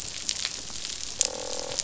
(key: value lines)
label: biophony, croak
recorder: SoundTrap 500